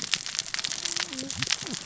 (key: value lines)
label: biophony, cascading saw
recorder: SoundTrap 600 or HydroMoth